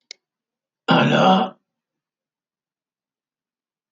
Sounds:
Throat clearing